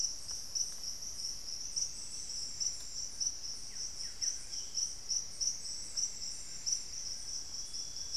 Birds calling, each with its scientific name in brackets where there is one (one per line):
Buff-breasted Wren (Cantorchilus leucotis)
unidentified bird
Cinnamon-throated Woodcreeper (Dendrexetastes rufigula)